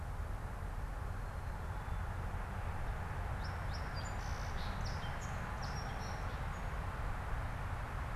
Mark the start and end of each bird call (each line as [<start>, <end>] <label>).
[2.83, 6.93] Song Sparrow (Melospiza melodia)